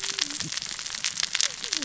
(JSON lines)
{"label": "biophony, cascading saw", "recorder": "SoundTrap 600 or HydroMoth"}